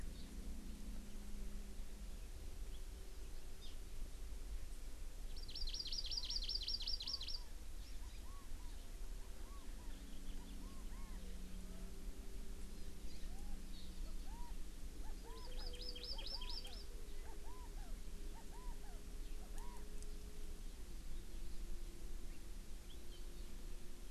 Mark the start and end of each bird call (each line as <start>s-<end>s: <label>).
5.3s-7.4s: Hawaii Amakihi (Chlorodrepanis virens)
6.1s-6.4s: Chinese Hwamei (Garrulax canorus)
7.0s-7.5s: Chinese Hwamei (Garrulax canorus)
8.0s-8.7s: Chinese Hwamei (Garrulax canorus)
8.1s-8.2s: Hawaii Amakihi (Chlorodrepanis virens)
9.2s-9.9s: Chinese Hwamei (Garrulax canorus)
10.4s-11.2s: Chinese Hwamei (Garrulax canorus)
12.7s-12.9s: Hawaii Amakihi (Chlorodrepanis virens)
13.2s-13.6s: Chinese Hwamei (Garrulax canorus)
14.0s-14.5s: Chinese Hwamei (Garrulax canorus)
15.0s-15.7s: Chinese Hwamei (Garrulax canorus)
15.3s-16.8s: Hawaii Amakihi (Chlorodrepanis virens)
16.1s-16.8s: Chinese Hwamei (Garrulax canorus)
17.2s-17.9s: Chinese Hwamei (Garrulax canorus)
18.3s-19.0s: Chinese Hwamei (Garrulax canorus)
19.4s-19.8s: Chinese Hwamei (Garrulax canorus)